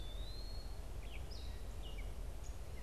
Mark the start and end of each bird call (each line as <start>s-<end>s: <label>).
0.0s-0.8s: Eastern Wood-Pewee (Contopus virens)
0.0s-2.8s: Gray Catbird (Dumetella carolinensis)